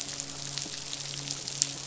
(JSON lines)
{"label": "biophony, midshipman", "recorder": "SoundTrap 500"}